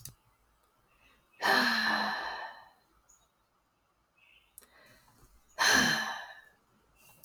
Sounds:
Sigh